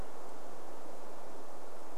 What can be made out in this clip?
forest ambience